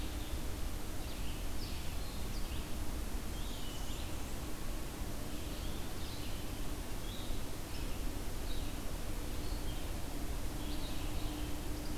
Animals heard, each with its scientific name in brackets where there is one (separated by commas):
Red-eyed Vireo (Vireo olivaceus), Blackburnian Warbler (Setophaga fusca)